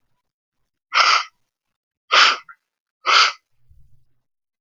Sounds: Sneeze